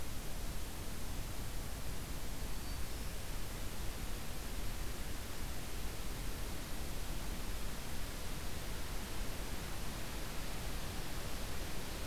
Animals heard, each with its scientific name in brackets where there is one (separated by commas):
Black-throated Green Warbler (Setophaga virens)